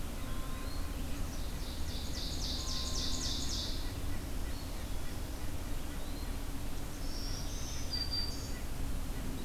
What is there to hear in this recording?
Eastern Wood-Pewee, Ovenbird, Black-throated Green Warbler, White-breasted Nuthatch